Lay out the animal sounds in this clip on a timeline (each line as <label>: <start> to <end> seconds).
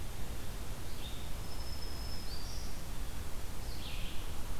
Red-eyed Vireo (Vireo olivaceus): 0.0 to 4.6 seconds
Black-throated Green Warbler (Setophaga virens): 1.2 to 3.0 seconds